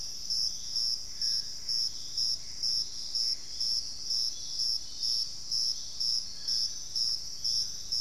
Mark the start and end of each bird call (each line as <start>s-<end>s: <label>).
0.0s-8.0s: Dusky-throated Antshrike (Thamnomanes ardesiacus)
0.9s-3.8s: Gray Antbird (Cercomacra cinerascens)